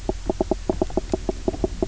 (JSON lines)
{"label": "biophony, knock croak", "recorder": "SoundTrap 300"}